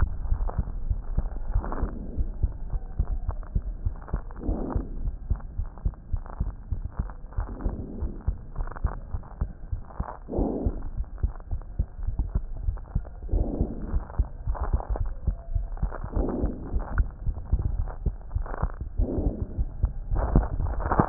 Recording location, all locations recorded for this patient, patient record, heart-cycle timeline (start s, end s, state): pulmonary valve (PV)
aortic valve (AV)+pulmonary valve (PV)+tricuspid valve (TV)+mitral valve (MV)
#Age: Child
#Sex: Female
#Height: 113.0 cm
#Weight: 17.8 kg
#Pregnancy status: False
#Murmur: Absent
#Murmur locations: nan
#Most audible location: nan
#Systolic murmur timing: nan
#Systolic murmur shape: nan
#Systolic murmur grading: nan
#Systolic murmur pitch: nan
#Systolic murmur quality: nan
#Diastolic murmur timing: nan
#Diastolic murmur shape: nan
#Diastolic murmur grading: nan
#Diastolic murmur pitch: nan
#Diastolic murmur quality: nan
#Outcome: Normal
#Campaign: 2015 screening campaign
0.00	0.66	unannotated
0.66	0.84	diastole
0.84	0.98	S1
0.98	1.12	systole
1.12	1.28	S2
1.28	1.48	diastole
1.48	1.66	S1
1.66	1.80	systole
1.80	1.92	S2
1.92	2.16	diastole
2.16	2.30	S1
2.30	2.40	systole
2.40	2.54	S2
2.54	2.72	diastole
2.72	2.82	S1
2.82	2.92	systole
2.92	3.06	S2
3.06	3.24	diastole
3.24	3.40	S1
3.40	3.52	systole
3.52	3.64	S2
3.64	3.82	diastole
3.82	3.96	S1
3.96	4.12	systole
4.12	4.24	S2
4.24	4.48	diastole
4.48	4.58	S1
4.58	4.74	systole
4.74	4.86	S2
4.86	5.02	diastole
5.02	5.14	S1
5.14	5.26	systole
5.26	5.38	S2
5.38	5.58	diastole
5.58	5.68	S1
5.68	5.82	systole
5.82	5.92	S2
5.92	6.10	diastole
6.10	6.20	S1
6.20	6.38	systole
6.38	6.52	S2
6.52	6.69	diastole
6.69	6.84	S1
6.84	6.98	systole
6.98	7.10	S2
7.10	7.36	diastole
7.36	7.48	S1
7.48	7.62	systole
7.62	7.76	S2
7.76	8.02	diastole
8.02	8.12	S1
8.12	8.24	systole
8.24	8.36	S2
8.36	8.58	diastole
8.58	8.68	S1
8.68	8.82	systole
8.82	8.96	S2
8.96	9.12	diastole
9.12	9.20	S1
9.20	9.40	systole
9.40	9.50	S2
9.50	9.71	diastole
9.71	9.82	S1
9.82	9.97	systole
9.97	10.07	S2
10.07	10.36	diastole
10.36	10.50	S1
10.50	10.62	systole
10.62	10.74	S2
10.74	10.96	diastole
10.96	11.06	S1
11.06	11.22	systole
11.22	11.34	S2
11.34	11.48	diastole
11.48	11.62	S1
11.62	11.78	systole
11.78	11.88	S2
11.88	12.03	diastole
12.03	21.09	unannotated